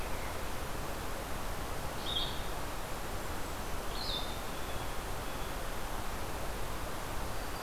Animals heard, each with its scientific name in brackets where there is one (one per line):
Blue Jay (Cyanocitta cristata)
Blue-headed Vireo (Vireo solitarius)